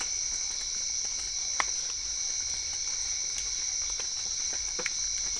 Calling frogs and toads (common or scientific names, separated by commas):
Physalaemus cuvieri